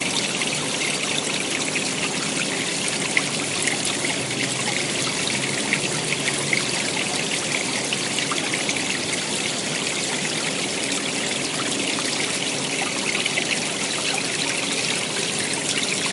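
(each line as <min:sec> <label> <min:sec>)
0:00.0 Water flowing calmly. 0:16.1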